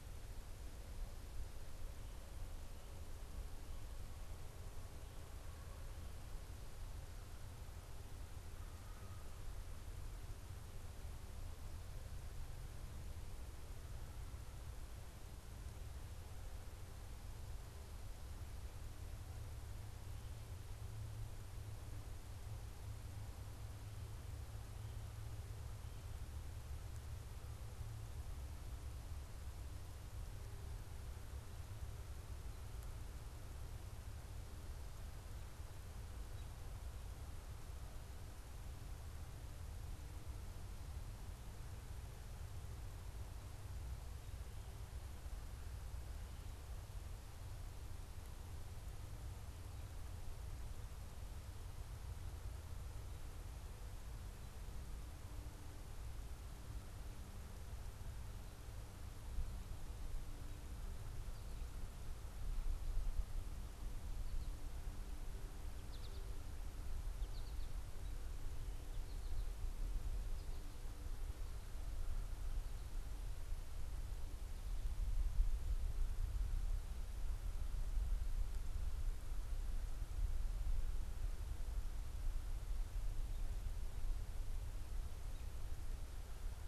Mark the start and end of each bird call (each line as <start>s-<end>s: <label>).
65.5s-70.7s: American Goldfinch (Spinus tristis)